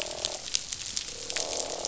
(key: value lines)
label: biophony, croak
recorder: SoundTrap 500